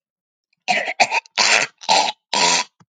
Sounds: Cough